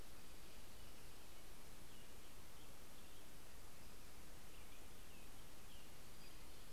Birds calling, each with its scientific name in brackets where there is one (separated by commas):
Pacific-slope Flycatcher (Empidonax difficilis), American Robin (Turdus migratorius)